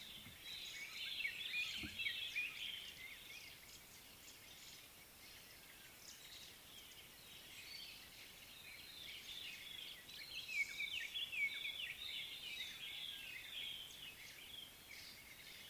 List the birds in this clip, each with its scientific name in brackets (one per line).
White-browed Robin-Chat (Cossypha heuglini)